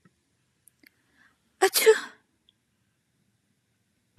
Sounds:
Sneeze